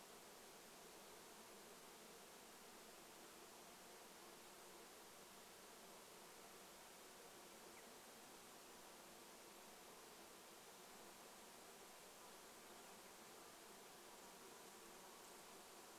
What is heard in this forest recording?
insect buzz, unidentified sound